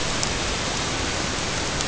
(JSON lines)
{"label": "ambient", "recorder": "HydroMoth"}